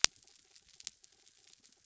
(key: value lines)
label: anthrophony, mechanical
recorder: SoundTrap 300